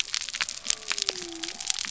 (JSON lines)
{"label": "biophony", "recorder": "SoundTrap 300"}